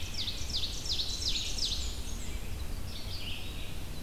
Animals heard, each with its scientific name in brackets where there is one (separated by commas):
Red-eyed Vireo (Vireo olivaceus), Rose-breasted Grosbeak (Pheucticus ludovicianus), Blackburnian Warbler (Setophaga fusca), Ovenbird (Seiurus aurocapilla)